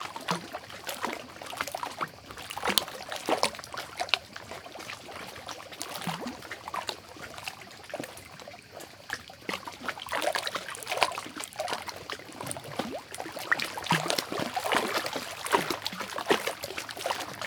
Is there any liquid involved?
yes